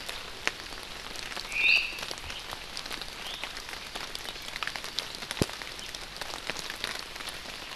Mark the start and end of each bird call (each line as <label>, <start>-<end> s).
Omao (Myadestes obscurus), 1.4-2.0 s
Iiwi (Drepanis coccinea), 1.6-2.0 s
Iiwi (Drepanis coccinea), 3.2-3.5 s